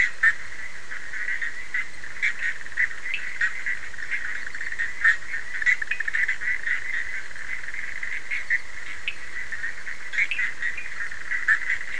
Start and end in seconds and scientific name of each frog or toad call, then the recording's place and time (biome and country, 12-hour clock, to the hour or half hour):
0.0	11.9	Boana bischoffi
3.0	3.3	Sphaenorhynchus surdus
5.8	6.0	Sphaenorhynchus surdus
9.0	11.0	Sphaenorhynchus surdus
Atlantic Forest, Brazil, 12:30am